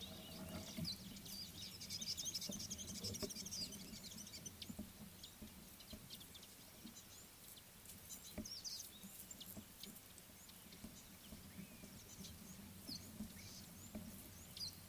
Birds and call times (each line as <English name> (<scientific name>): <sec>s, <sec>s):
Mariqua Sunbird (Cinnyris mariquensis): 2.6s